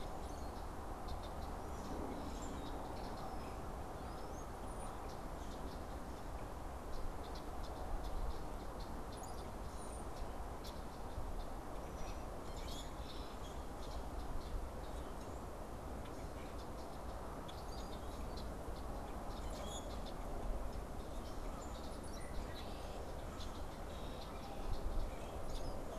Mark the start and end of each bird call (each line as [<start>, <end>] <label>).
[0.00, 25.98] unidentified bird
[12.37, 13.47] Common Grackle (Quiscalus quiscula)
[19.07, 20.37] Common Grackle (Quiscalus quiscula)